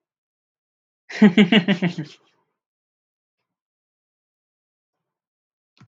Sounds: Laughter